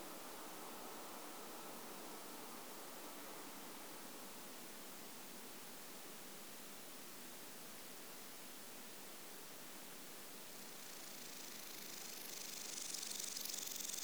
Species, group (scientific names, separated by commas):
Omocestus haemorrhoidalis, Orthoptera